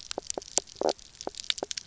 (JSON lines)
{"label": "biophony, knock croak", "recorder": "SoundTrap 300"}